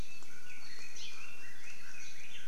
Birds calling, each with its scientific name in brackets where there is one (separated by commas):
Red-billed Leiothrix (Leiothrix lutea), Hawaii Creeper (Loxops mana)